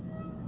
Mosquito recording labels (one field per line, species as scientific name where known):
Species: Aedes albopictus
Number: one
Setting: insect culture